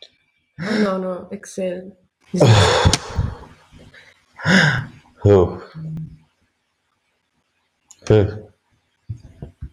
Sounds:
Sigh